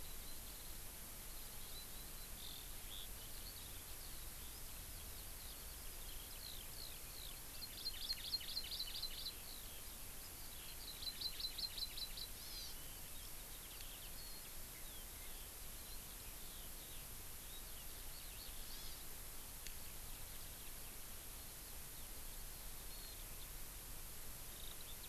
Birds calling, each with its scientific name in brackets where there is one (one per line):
Hawaii Amakihi (Chlorodrepanis virens)
Eurasian Skylark (Alauda arvensis)